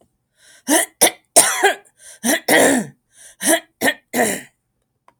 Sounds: Throat clearing